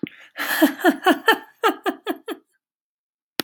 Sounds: Laughter